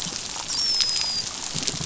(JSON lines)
{"label": "biophony, dolphin", "recorder": "SoundTrap 500"}